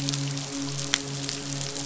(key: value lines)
label: biophony, midshipman
recorder: SoundTrap 500